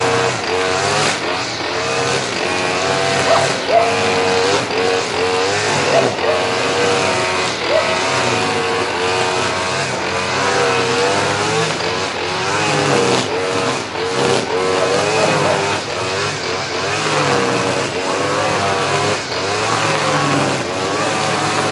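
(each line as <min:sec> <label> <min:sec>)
0:00.0 A lawnmower operates loudly and repetitively. 0:21.7
0:03.2 A dog barks in the distance outside. 0:04.1
0:05.9 A dog barks in the distance outside. 0:06.9
0:07.7 A dog barks in the distance outside. 0:08.2
0:15.0 A dog barks in the distance outside. 0:15.8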